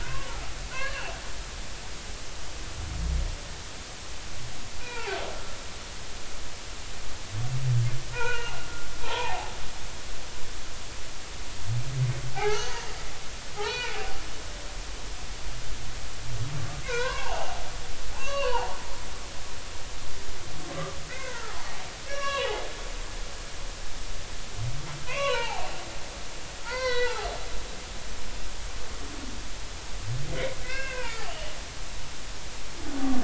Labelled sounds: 0.0	1.0	humpback whale, 0.93 to 1.8 kHz
4.8	5.2	humpback whale, 0.80 to 2.5 kHz
8.1	8.5	humpback whale, 0.86 to 3.0 kHz
9.0	9.5	humpback whale, 0.80 to 1.1 kHz
12.3	12.8	humpback whale, 0.80 to 6.5 kHz
13.6	14.0	humpback whale, 0.80 to 4.5 kHz
16.8	17.6	humpback whale, 0.80 to 3.0 kHz
18.1	18.8	humpback whale, 0.80 to 4.6 kHz
21.1	22.6	humpback whale, 0.80 to 5.7 kHz
23.1	23.4	humpback whale, 3.2 to 3.5 kHz
25.1	27.3	humpback whale, 0.80 to 4.7 kHz
30.3	31.6	humpback whale, 1.3 to 3.0 kHz

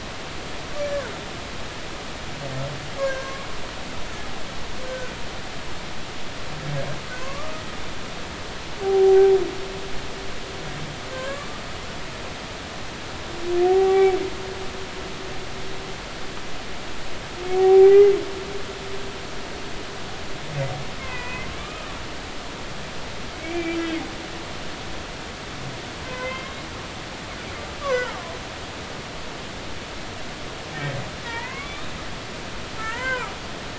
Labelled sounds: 0.9	1.1	humpback whale, 1.3 to 1.8 kHz
3.0	3.5	humpback whale, 0.99 to 6.0 kHz
4.9	5.1	humpback whale, 1.4 to 1.6 kHz
7.2	7.6	humpback whale, 0.99 to 1.3 kHz
8.8	9.4	humpback whale, 0.80 to 0.83 kHz
11.1	11.5	humpback whale, 0.99 to 1.8 kHz
13.6	14.2	humpback whale, 0.80 to 2.4 kHz
17.5	18.2	humpback whale, 0.80 to 2.1 kHz
21.0	21.9	humpback whale, 0.86 to 2.7 kHz
23.3	23.8	humpback whale, 2.1 to 2.5 kHz
26.0	26.5	humpback whale, 0.96 to 2.2 kHz
27.8	28.3	humpback whale, 0.83 to 2.3 kHz
31.2	31.9	humpback whale, 0.86 to 3.8 kHz
32.8	33.4	humpback whale, 0.80 to 3.2 kHz

